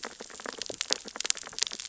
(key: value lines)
label: biophony, sea urchins (Echinidae)
recorder: SoundTrap 600 or HydroMoth